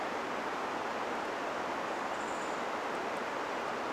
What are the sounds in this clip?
unidentified bird chip note